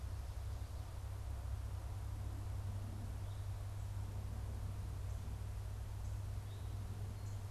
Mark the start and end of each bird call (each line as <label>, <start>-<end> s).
Eastern Towhee (Pipilo erythrophthalmus), 3.2-7.0 s